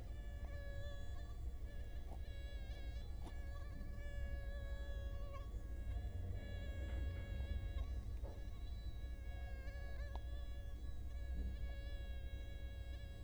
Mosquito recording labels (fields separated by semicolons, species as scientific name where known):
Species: Culex quinquefasciatus; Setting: cup